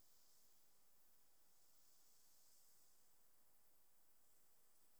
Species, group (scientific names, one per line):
Platycleis intermedia
Orthoptera